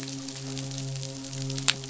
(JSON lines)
{"label": "biophony, midshipman", "recorder": "SoundTrap 500"}